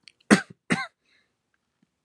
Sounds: Throat clearing